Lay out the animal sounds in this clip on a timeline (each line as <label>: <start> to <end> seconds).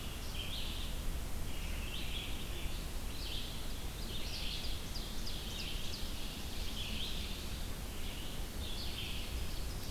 Red-eyed Vireo (Vireo olivaceus): 0.0 to 9.9 seconds
Ovenbird (Seiurus aurocapilla): 3.9 to 7.3 seconds
Ovenbird (Seiurus aurocapilla): 8.8 to 9.9 seconds